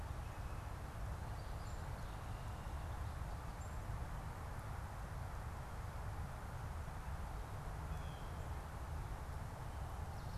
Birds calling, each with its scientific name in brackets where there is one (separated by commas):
Red-winged Blackbird (Agelaius phoeniceus), Blue Jay (Cyanocitta cristata), Black-capped Chickadee (Poecile atricapillus)